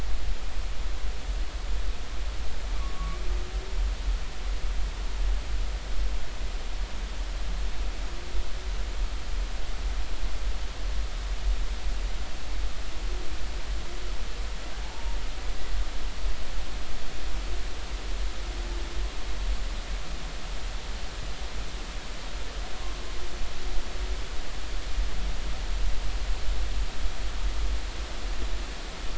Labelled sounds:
2.8	3.2	humpback whale, 1.1 to 1.2 kHz
14.8	15.2	humpback whale, 0.83 to 0.99 kHz

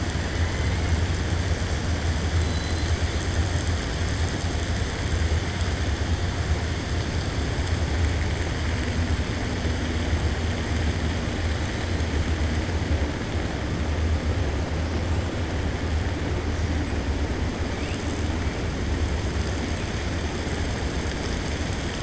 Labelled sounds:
2.4	2.9	killer whale, 3.0 to 4.2 kHz

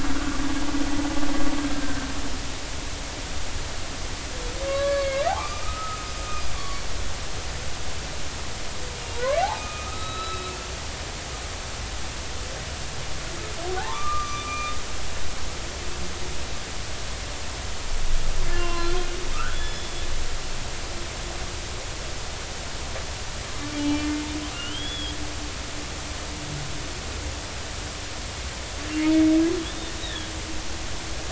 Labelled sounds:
1.8	2.1	humpback whale, 1.5 to 1.6 kHz
4.7	6.1	humpback whale, 0.99 to 2.6 kHz
9.1	10.5	humpback whale, 0.86 to 4.0 kHz
13.7	14.7	humpback whale, 0.80 to 2.5 kHz
18.5	19.0	humpback whale, 0.96 to 2.8 kHz
19.3	19.9	humpback whale, 1.2 to 5.3 kHz
23.8	25.2	humpback whale, 2.3 to 3.5 kHz
30.0	30.3	humpback whale, 1.6 to 3.9 kHz

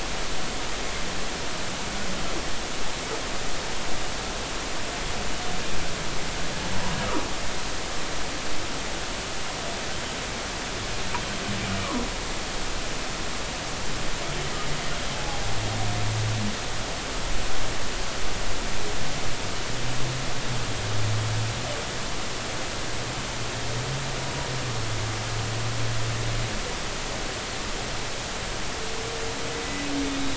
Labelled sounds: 11.8	12.0	humpback whale, 0.93 to 1.3 kHz
15.1	15.4	humpback whale, 0.80 to 0.90 kHz

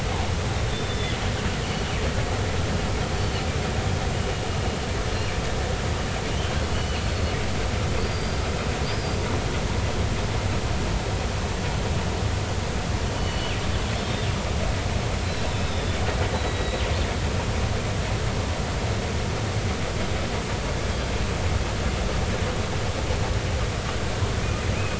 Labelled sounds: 0.7	1.2	killer whale, northern resident, 3.2 to 3.7 kHz
6.7	7.0	killer whale, northern resident, 2.9 to 3.0 kHz
8.0	8.5	killer whale, northern resident, 4.6 to 5.1 kHz
13.2	13.5	killer whale, northern resident, 4.4 to 4.5 kHz
13.9	14.5	killer whale, northern resident, 2.9 to 5.5 kHz
15.2	15.9	killer whale, northern resident, 3.6 to 5.3 kHz
16.3	16.8	killer whale, northern resident, 1.9 to 4.1 kHz

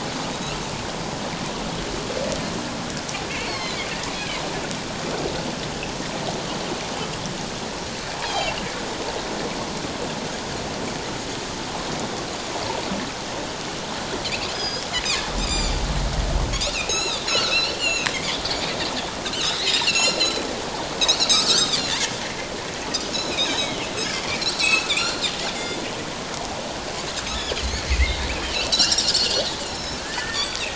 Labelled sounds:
3.3	3.8	Pacific white-sided dolphin, 1.0 to 4.5 kHz
4.2	4.4	Pacific white-sided dolphin, 2.0 to 2.6 kHz
8.2	8.6	Pacific white-sided dolphin, 3.0 to 3.4 kHz
14.5	14.8	Pacific white-sided dolphin, 1.6 to 5.2 kHz
15.4	15.7	Pacific white-sided dolphin, 2.2 to 7.3 kHz
16.6	18.1	Pacific white-sided dolphin, 1.3 to 7.3 kHz
19.2	20.4	Pacific white-sided dolphin, 1.3 to 8.0 kHz
21.2	21.9	Pacific white-sided dolphin, 1.1 to 7.9 kHz
23.1	23.9	Pacific white-sided dolphin, 2.2 to 6.9 kHz
24.5	25.2	Pacific white-sided dolphin, 2.2 to 7.9 kHz
25.5	25.8	Pacific white-sided dolphin, 2.0 to 2.2 kHz
27.3	29.3	Pacific white-sided dolphin, 1.3 to 7.3 kHz
29.6	30.6	Pacific white-sided dolphin, 1.7 to 5.7 kHz

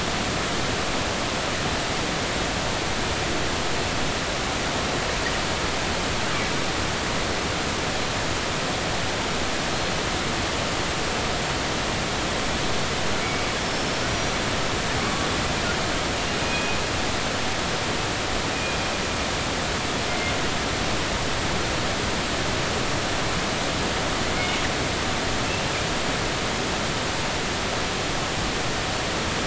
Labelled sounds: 9.7	10.0	killer whale, northern resident, G clan, 4.1 to 4.2 kHz
13.6	14.3	killer whale, northern resident, G clan, 5.3 to 5.9 kHz
15.0	15.3	killer whale, northern resident, G clan, 1.1 to 1.2 kHz
16.4	16.8	killer whale, northern resident, G clan, 2.4 to 2.6 kHz
18.5	18.8	killer whale, northern resident, G clan, 2.4 to 2.5 kHz
20.1	20.3	killer whale, northern resident, G clan, 2.0 to 2.2 kHz

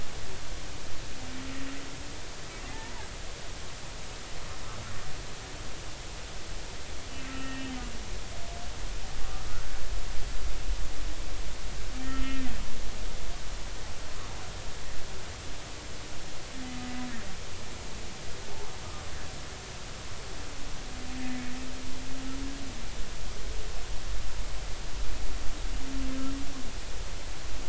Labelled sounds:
2.7	2.9	humpback whale, 0.80 to 0.99 kHz
7.3	7.7	humpback whale, 1.3 to 2.8 kHz
12.1	12.4	humpback whale, 1.3 to 2.2 kHz
18.5	18.8	humpback whale, 0.80 to 1.2 kHz

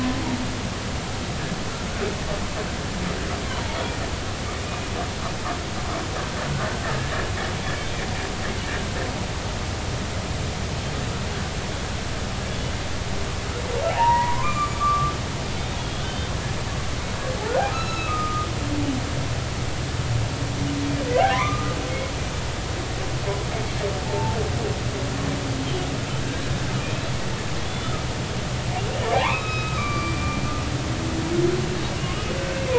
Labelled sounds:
3.5	3.8	humpback whale, 0.83 to 1.1 kHz
4.6	4.9	humpback whale, 2.4 to 2.5 kHz
6.8	7.1	humpback whale, 1.6 to 1.9 kHz
13.9	15.1	humpback whale, 0.80 to 7.2 kHz
15.8	16.3	humpback whale, 2.9 to 3.7 kHz
17.7	18.5	humpback whale, 1.2 to 6.7 kHz
21.1	21.8	humpback whale, 0.96 to 2.5 kHz
24.0	24.4	humpback whale, 0.83 to 0.93 kHz
27.6	28.0	humpback whale, 3.3 to 3.5 kHz
29.1	30.2	humpback whale, 0.80 to 5.2 kHz

